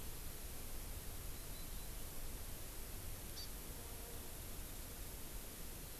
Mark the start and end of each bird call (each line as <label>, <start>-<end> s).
Hawaii Amakihi (Chlorodrepanis virens), 3.3-3.5 s